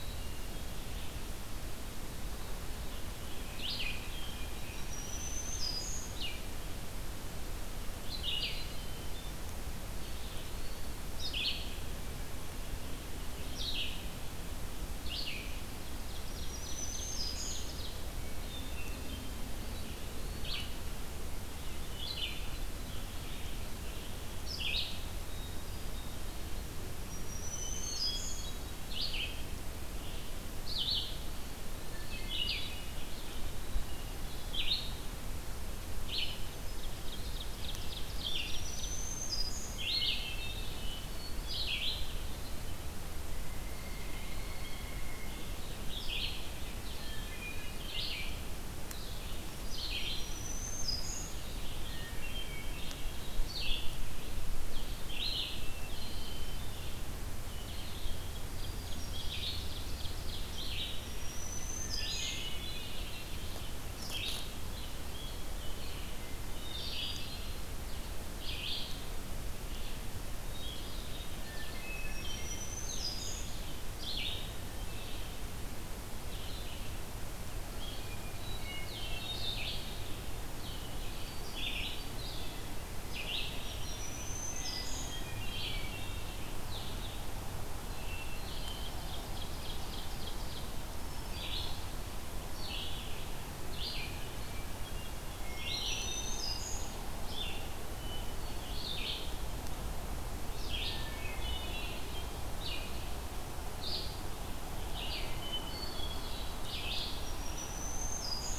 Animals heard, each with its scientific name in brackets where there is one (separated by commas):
Hairy Woodpecker (Dryobates villosus), Ovenbird (Seiurus aurocapilla), Hermit Thrush (Catharus guttatus), Eastern Wood-Pewee (Contopus virens), Red-eyed Vireo (Vireo olivaceus), Black-throated Green Warbler (Setophaga virens), Blue-headed Vireo (Vireo solitarius)